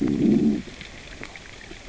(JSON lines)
{"label": "biophony, growl", "recorder": "SoundTrap 600 or HydroMoth"}